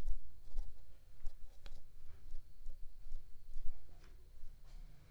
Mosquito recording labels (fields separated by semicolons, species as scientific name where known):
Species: Aedes aegypti; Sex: female; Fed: unfed; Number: one; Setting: cup